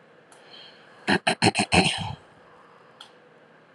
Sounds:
Throat clearing